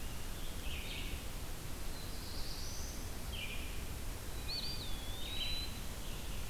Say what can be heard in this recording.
Red-eyed Vireo, Black-throated Blue Warbler, Eastern Wood-Pewee